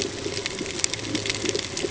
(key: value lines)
label: ambient
recorder: HydroMoth